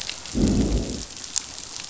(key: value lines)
label: biophony, growl
recorder: SoundTrap 500